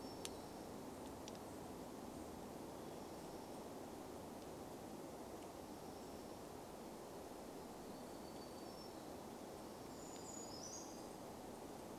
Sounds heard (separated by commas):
Brown Creeper song, warbler song, unidentified sound